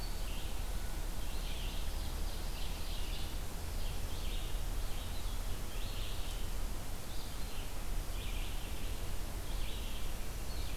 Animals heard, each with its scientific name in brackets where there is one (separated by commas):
Red-eyed Vireo (Vireo olivaceus), Ovenbird (Seiurus aurocapilla)